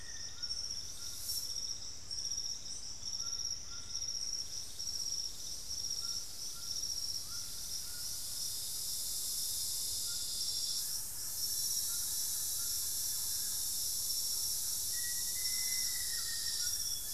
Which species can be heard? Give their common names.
White-throated Toucan, Thrush-like Wren, Plain-winged Antshrike, Black-faced Antthrush, Amazonian Grosbeak